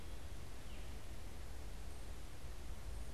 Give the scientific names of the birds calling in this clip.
Catharus fuscescens